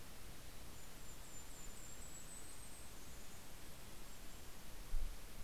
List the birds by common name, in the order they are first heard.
Golden-crowned Kinglet